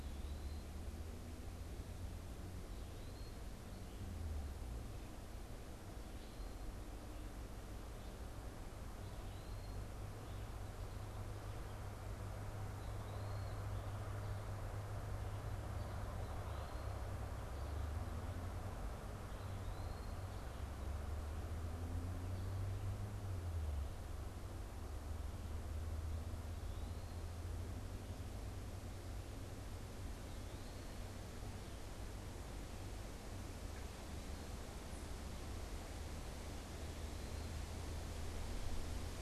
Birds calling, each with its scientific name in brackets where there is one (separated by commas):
Eastern Wood-Pewee (Contopus virens), Red-eyed Vireo (Vireo olivaceus)